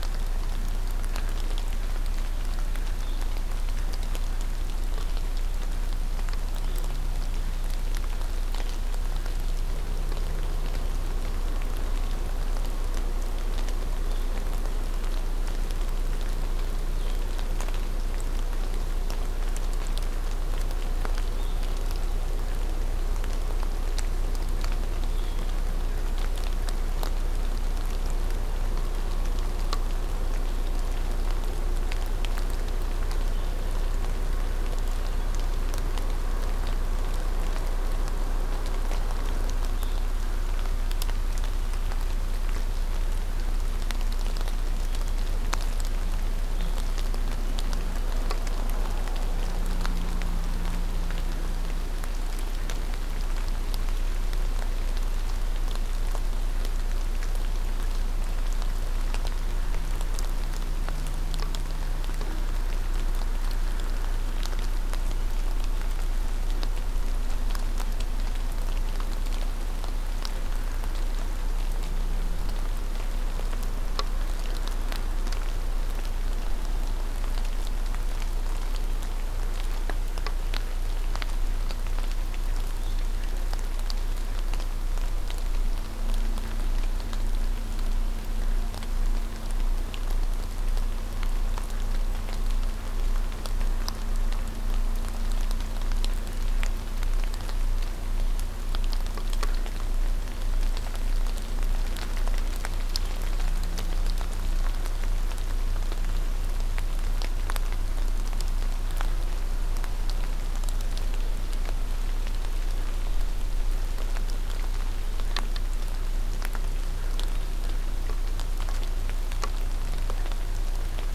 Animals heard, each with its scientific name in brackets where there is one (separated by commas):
Blue-headed Vireo (Vireo solitarius)